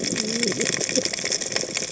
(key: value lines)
label: biophony, cascading saw
recorder: HydroMoth